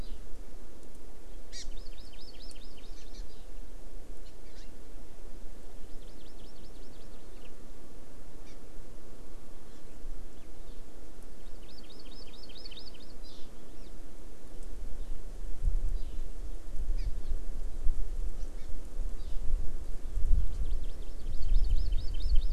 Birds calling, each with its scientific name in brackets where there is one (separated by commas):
Hawaii Amakihi (Chlorodrepanis virens)